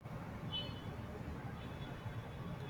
{"expert_labels": [{"quality": "no cough present", "cough_type": "unknown", "dyspnea": false, "wheezing": false, "stridor": false, "choking": false, "congestion": false, "nothing": true, "diagnosis": "healthy cough", "severity": "unknown"}]}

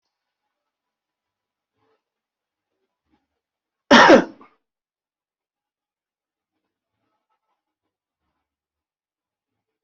{"expert_labels": [{"quality": "good", "cough_type": "dry", "dyspnea": false, "wheezing": false, "stridor": false, "choking": false, "congestion": false, "nothing": true, "diagnosis": "healthy cough", "severity": "pseudocough/healthy cough"}]}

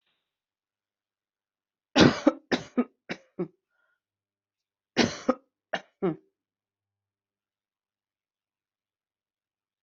{"expert_labels": [{"quality": "good", "cough_type": "dry", "dyspnea": false, "wheezing": false, "stridor": false, "choking": false, "congestion": false, "nothing": true, "diagnosis": "obstructive lung disease", "severity": "mild"}], "age": 41, "gender": "female", "respiratory_condition": true, "fever_muscle_pain": true, "status": "symptomatic"}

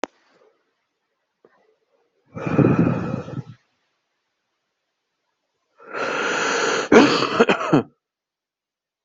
{"expert_labels": [{"quality": "ok", "cough_type": "wet", "dyspnea": false, "wheezing": false, "stridor": false, "choking": false, "congestion": false, "nothing": true, "diagnosis": "COVID-19", "severity": "mild"}], "age": 38, "gender": "male", "respiratory_condition": false, "fever_muscle_pain": false, "status": "healthy"}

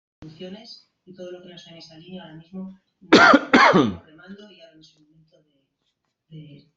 {"expert_labels": [{"quality": "good", "cough_type": "dry", "dyspnea": false, "wheezing": false, "stridor": false, "choking": false, "congestion": false, "nothing": true, "diagnosis": "healthy cough", "severity": "pseudocough/healthy cough"}]}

